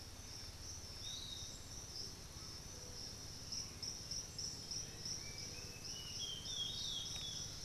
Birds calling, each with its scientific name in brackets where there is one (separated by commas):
Olivaceous Woodcreeper (Sittasomus griseicapillus), unidentified bird, Piratic Flycatcher (Legatus leucophaius)